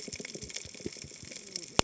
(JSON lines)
{"label": "biophony, cascading saw", "recorder": "HydroMoth"}